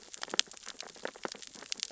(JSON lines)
{"label": "biophony, sea urchins (Echinidae)", "recorder": "SoundTrap 600 or HydroMoth"}